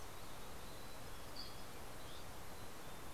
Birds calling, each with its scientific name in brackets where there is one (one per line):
Dusky Flycatcher (Empidonax oberholseri)
Mountain Chickadee (Poecile gambeli)